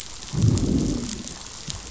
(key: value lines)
label: biophony, growl
recorder: SoundTrap 500